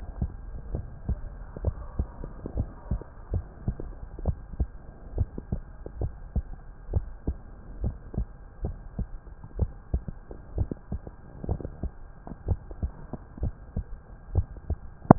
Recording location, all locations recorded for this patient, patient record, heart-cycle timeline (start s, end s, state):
tricuspid valve (TV)
aortic valve (AV)+pulmonary valve (PV)+tricuspid valve (TV)+mitral valve (MV)
#Age: Child
#Sex: Male
#Height: 141.0 cm
#Weight: 39.8 kg
#Pregnancy status: False
#Murmur: Absent
#Murmur locations: nan
#Most audible location: nan
#Systolic murmur timing: nan
#Systolic murmur shape: nan
#Systolic murmur grading: nan
#Systolic murmur pitch: nan
#Systolic murmur quality: nan
#Diastolic murmur timing: nan
#Diastolic murmur shape: nan
#Diastolic murmur grading: nan
#Diastolic murmur pitch: nan
#Diastolic murmur quality: nan
#Outcome: Normal
#Campaign: 2015 screening campaign
0.00	0.68	unannotated
0.68	0.86	S1
0.86	1.06	systole
1.06	1.20	S2
1.20	1.60	diastole
1.60	1.76	S1
1.76	1.94	systole
1.94	2.08	S2
2.08	2.54	diastole
2.54	2.68	S1
2.68	2.86	systole
2.86	3.02	S2
3.02	3.29	diastole
3.29	3.46	S1
3.46	3.64	systole
3.64	3.76	S2
3.76	4.22	diastole
4.22	4.36	S1
4.36	4.56	systole
4.56	4.70	S2
4.70	5.14	diastole
5.14	5.28	S1
5.28	5.50	systole
5.50	5.60	S2
5.60	5.98	diastole
5.98	6.12	S1
6.12	6.32	systole
6.32	6.46	S2
6.46	6.90	diastole
6.90	7.06	S1
7.06	7.24	systole
7.24	7.38	S2
7.38	7.80	diastole
7.80	7.96	S1
7.96	8.14	systole
8.14	8.28	S2
8.28	8.60	diastole
8.60	8.78	S1
8.78	8.96	systole
8.96	9.08	S2
9.08	9.56	diastole
9.56	9.70	S1
9.70	9.90	systole
9.90	10.04	S2
10.04	10.54	diastole
10.54	10.70	S1
10.70	10.88	systole
10.88	11.02	S2
11.02	11.45	diastole
11.45	11.64	S1
11.64	11.80	systole
11.80	11.94	S2
11.94	12.45	diastole
12.45	12.58	S1
12.58	12.80	systole
12.80	12.96	S2
12.96	13.39	diastole
13.39	13.56	S1
13.56	13.72	systole
13.72	13.86	S2
13.86	14.32	diastole
14.32	14.46	S1
14.46	14.64	systole
14.64	14.78	S2
14.78	15.18	unannotated